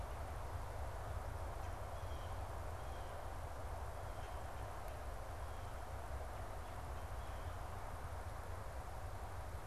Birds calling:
Red-bellied Woodpecker (Melanerpes carolinus), Blue Jay (Cyanocitta cristata)

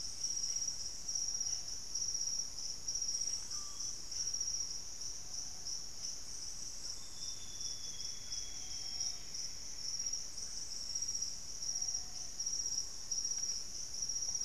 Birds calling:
Plumbeous Antbird (Myrmelastes hyperythrus), Black-faced Antthrush (Formicarius analis), Blue-headed Parrot (Pionus menstruus), Screaming Piha (Lipaugus vociferans), Amazonian Grosbeak (Cyanoloxia rothschildii)

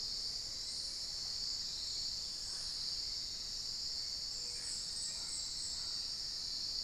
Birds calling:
unidentified bird, Black-faced Antthrush (Formicarius analis)

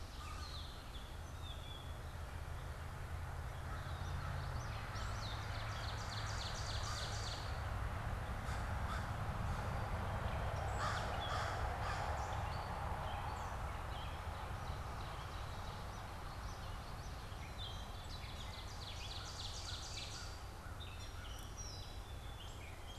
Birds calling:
Common Yellowthroat (Geothlypis trichas), Black-capped Chickadee (Poecile atricapillus), Gray Catbird (Dumetella carolinensis), American Crow (Corvus brachyrhynchos), Ovenbird (Seiurus aurocapilla)

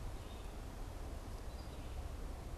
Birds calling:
Red-eyed Vireo (Vireo olivaceus)

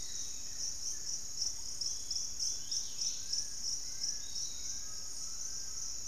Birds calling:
Fasciated Antshrike (Cymbilaimus lineatus), Buff-throated Woodcreeper (Xiphorhynchus guttatus), Piratic Flycatcher (Legatus leucophaius), Dusky-capped Greenlet (Pachysylvia hypoxantha), Undulated Tinamou (Crypturellus undulatus), Hauxwell's Thrush (Turdus hauxwelli)

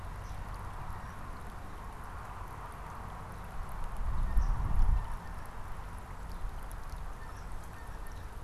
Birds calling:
Blue Jay (Cyanocitta cristata), Swamp Sparrow (Melospiza georgiana)

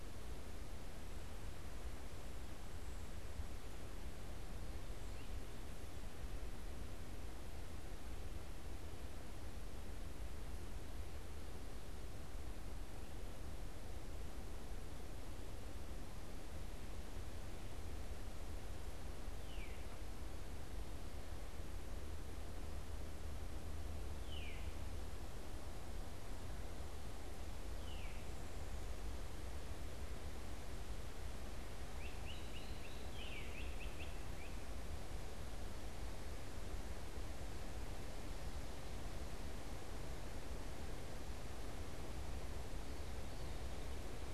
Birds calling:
Veery (Catharus fuscescens), Great Crested Flycatcher (Myiarchus crinitus)

